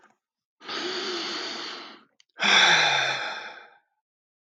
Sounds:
Sigh